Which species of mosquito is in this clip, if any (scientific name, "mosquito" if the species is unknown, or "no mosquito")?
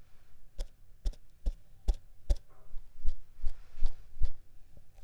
Mansonia uniformis